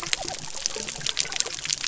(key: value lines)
label: biophony
recorder: SoundTrap 300